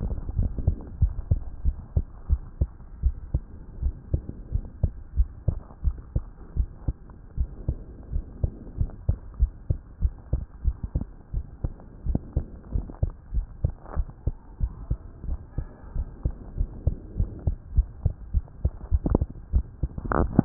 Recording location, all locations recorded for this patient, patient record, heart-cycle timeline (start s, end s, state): tricuspid valve (TV)
aortic valve (AV)+pulmonary valve (PV)+tricuspid valve (TV)+mitral valve (MV)
#Age: Adolescent
#Sex: Male
#Height: 142.0 cm
#Weight: 37.6 kg
#Pregnancy status: False
#Murmur: Absent
#Murmur locations: nan
#Most audible location: nan
#Systolic murmur timing: nan
#Systolic murmur shape: nan
#Systolic murmur grading: nan
#Systolic murmur pitch: nan
#Systolic murmur quality: nan
#Diastolic murmur timing: nan
#Diastolic murmur shape: nan
#Diastolic murmur grading: nan
#Diastolic murmur pitch: nan
#Diastolic murmur quality: nan
#Outcome: Normal
#Campaign: 2015 screening campaign
0.00	2.14	unannotated
2.14	2.28	diastole
2.28	2.40	S1
2.40	2.58	systole
2.58	2.72	S2
2.72	3.00	diastole
3.00	3.16	S1
3.16	3.32	systole
3.32	3.48	S2
3.48	3.78	diastole
3.78	3.94	S1
3.94	4.10	systole
4.10	4.22	S2
4.22	4.48	diastole
4.48	4.62	S1
4.62	4.80	systole
4.80	4.94	S2
4.94	5.15	diastole
5.15	5.28	S1
5.28	5.44	systole
5.44	5.58	S2
5.58	5.82	diastole
5.82	5.98	S1
5.98	6.13	systole
6.13	6.28	S2
6.28	6.54	diastole
6.54	6.68	S1
6.68	6.86	systole
6.86	6.98	S2
6.98	7.32	diastole
7.32	7.48	S1
7.48	7.65	systole
7.65	7.78	S2
7.78	8.10	diastole
8.10	8.24	S1
8.24	8.40	systole
8.40	8.52	S2
8.52	8.76	diastole
8.76	8.90	S1
8.90	9.04	systole
9.04	9.16	S2
9.16	9.36	diastole
9.36	9.50	S1
9.50	9.66	systole
9.66	9.78	S2
9.78	9.98	diastole
9.98	10.12	S1
10.12	10.30	systole
10.30	10.43	S2
10.43	10.62	diastole
10.62	10.76	S1
10.76	10.93	systole
10.93	11.08	S2
11.08	11.31	diastole
11.31	11.44	S1
11.44	11.61	systole
11.61	11.76	S2
11.76	12.03	diastole
12.03	12.22	S1
12.22	12.34	systole
12.34	12.46	S2
12.46	12.70	diastole
12.70	12.86	S1
12.86	13.00	systole
13.00	13.14	S2
13.14	13.30	diastole
13.30	13.46	S1
13.46	13.60	systole
13.60	13.72	S2
13.72	13.93	diastole
13.93	14.08	S1
14.08	14.24	systole
14.24	14.36	S2
14.36	14.58	diastole
14.58	14.70	S1
14.70	14.86	systole
14.86	14.98	S2
14.98	15.24	diastole
15.24	15.40	S1
15.40	15.55	systole
15.55	15.68	S2
15.68	15.92	diastole
15.92	16.08	S1
16.08	16.23	systole
16.23	16.36	S2
16.36	16.56	diastole
16.56	16.68	S1
16.68	16.84	systole
16.84	16.98	S2
16.98	17.16	diastole
17.16	17.30	S1
17.30	17.44	systole
17.44	17.58	S2
17.58	17.73	diastole
17.73	17.90	S1
17.90	18.02	systole
18.02	18.16	S2
18.16	18.31	diastole
18.31	18.48	S1
18.48	18.60	systole
18.60	18.74	S2
18.74	18.83	diastole
18.83	20.45	unannotated